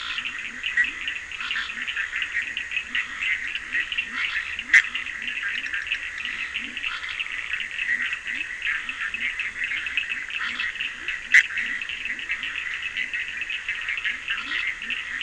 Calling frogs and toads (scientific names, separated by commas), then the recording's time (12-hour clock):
Leptodactylus latrans, Sphaenorhynchus surdus, Boana bischoffi
11:00pm